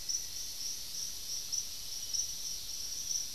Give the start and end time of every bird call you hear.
[0.00, 1.57] Cinnamon-rumped Foliage-gleaner (Philydor pyrrhodes)

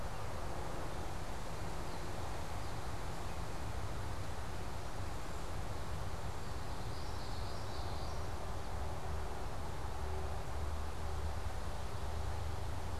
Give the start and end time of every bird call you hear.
[1.62, 3.02] unidentified bird
[6.62, 8.32] Common Yellowthroat (Geothlypis trichas)

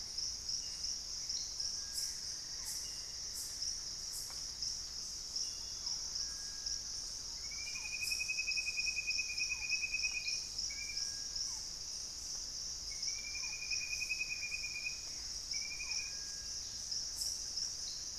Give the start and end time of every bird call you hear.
[0.00, 0.75] Buff-throated Woodcreeper (Xiphorhynchus guttatus)
[0.00, 2.55] Gray Antbird (Cercomacra cinerascens)
[0.00, 18.18] Barred Forest-Falcon (Micrastur ruficollis)
[1.75, 5.75] unidentified bird
[5.05, 8.45] Thrush-like Wren (Campylorhynchus turdinus)
[13.25, 15.55] Gray Antbird (Cercomacra cinerascens)
[16.45, 18.18] Buff-throated Woodcreeper (Xiphorhynchus guttatus)
[16.45, 18.18] unidentified bird

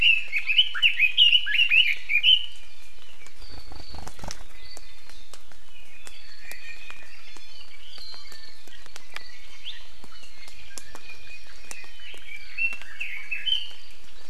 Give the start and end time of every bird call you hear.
[0.00, 2.65] Red-billed Leiothrix (Leiothrix lutea)
[4.75, 5.54] Iiwi (Drepanis coccinea)
[6.45, 8.74] Iiwi (Drepanis coccinea)
[10.64, 12.04] Hawaii Amakihi (Chlorodrepanis virens)
[11.54, 13.85] Red-billed Leiothrix (Leiothrix lutea)

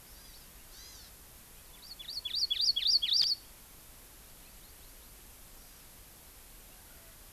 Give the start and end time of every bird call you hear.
[0.00, 1.20] Hawaii Amakihi (Chlorodrepanis virens)
[1.70, 3.50] Hawaii Amakihi (Chlorodrepanis virens)
[5.50, 5.90] Hawaii Amakihi (Chlorodrepanis virens)

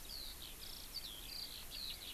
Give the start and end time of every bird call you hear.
[0.00, 2.14] Eurasian Skylark (Alauda arvensis)

